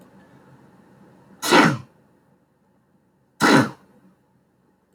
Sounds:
Sneeze